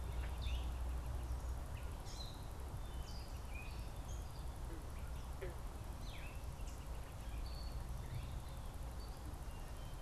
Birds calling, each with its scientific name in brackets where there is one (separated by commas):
Red-winged Blackbird (Agelaius phoeniceus), Gray Catbird (Dumetella carolinensis), Eastern Kingbird (Tyrannus tyrannus)